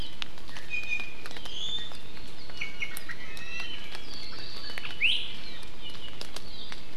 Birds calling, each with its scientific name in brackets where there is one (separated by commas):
Iiwi (Drepanis coccinea)